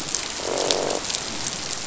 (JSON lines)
{"label": "biophony, croak", "recorder": "SoundTrap 500"}